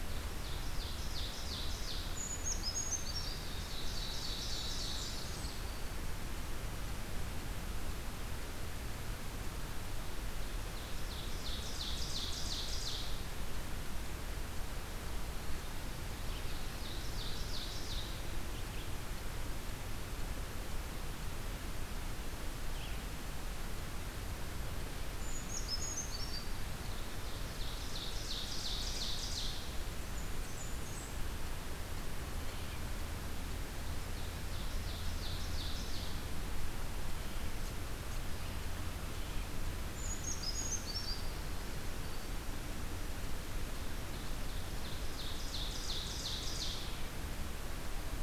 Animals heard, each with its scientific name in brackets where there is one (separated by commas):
Brown Creeper (Certhia americana), Blackburnian Warbler (Setophaga fusca), Ovenbird (Seiurus aurocapilla)